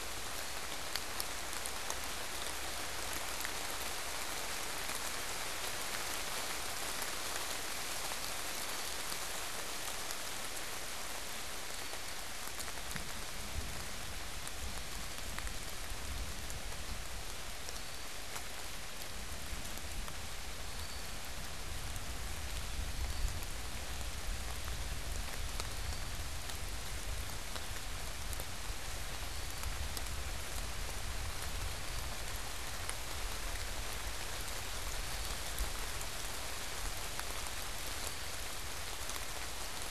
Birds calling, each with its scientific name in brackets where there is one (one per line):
Eastern Wood-Pewee (Contopus virens)